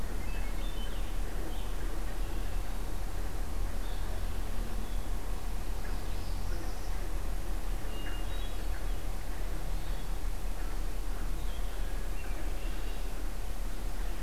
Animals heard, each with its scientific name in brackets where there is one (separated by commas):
Hermit Thrush (Catharus guttatus), Blue-headed Vireo (Vireo solitarius), Northern Parula (Setophaga americana)